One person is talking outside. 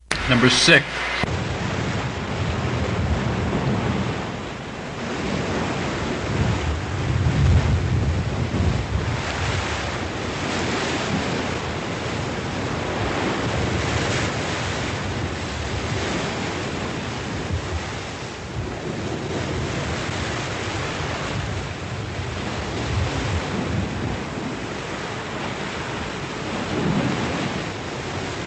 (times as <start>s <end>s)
0.0s 1.4s